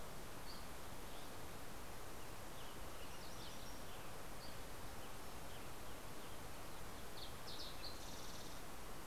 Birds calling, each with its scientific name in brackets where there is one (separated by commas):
Dusky Flycatcher (Empidonax oberholseri), Western Tanager (Piranga ludoviciana), Fox Sparrow (Passerella iliaca), Yellow-rumped Warbler (Setophaga coronata)